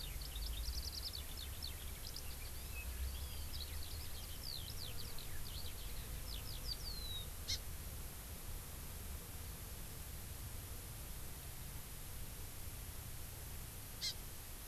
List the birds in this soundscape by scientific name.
Alauda arvensis, Chlorodrepanis virens